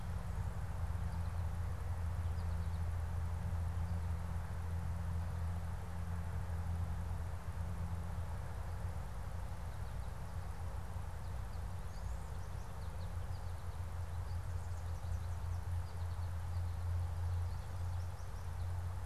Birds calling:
American Goldfinch (Spinus tristis)

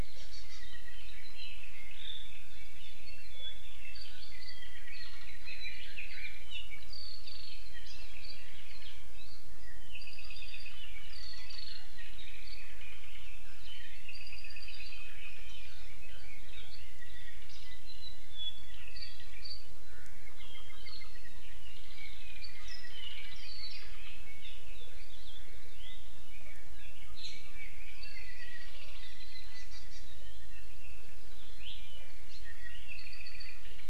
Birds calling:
Red-billed Leiothrix (Leiothrix lutea), Hawaii Amakihi (Chlorodrepanis virens), Apapane (Himatione sanguinea)

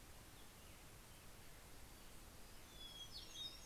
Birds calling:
Hermit Thrush (Catharus guttatus), Hermit Warbler (Setophaga occidentalis)

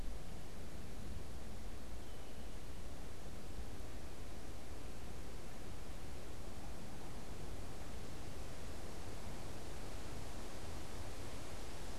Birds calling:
unidentified bird

